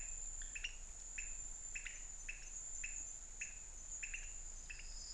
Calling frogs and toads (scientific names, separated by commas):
Leptodactylus podicipinus